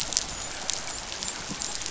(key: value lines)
label: biophony, dolphin
recorder: SoundTrap 500